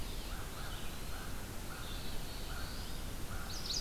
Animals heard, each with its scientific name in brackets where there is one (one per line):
American Crow (Corvus brachyrhynchos)
Red-eyed Vireo (Vireo olivaceus)
Black-throated Blue Warbler (Setophaga caerulescens)
Eastern Wood-Pewee (Contopus virens)